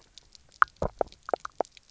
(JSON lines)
{"label": "biophony, knock croak", "recorder": "SoundTrap 300"}